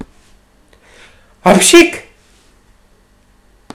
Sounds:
Sneeze